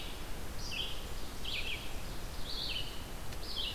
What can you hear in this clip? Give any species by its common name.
Red-eyed Vireo, Ovenbird